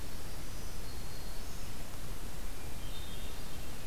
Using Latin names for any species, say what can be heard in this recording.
Setophaga virens, Catharus guttatus